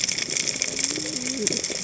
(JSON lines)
{"label": "biophony, cascading saw", "recorder": "HydroMoth"}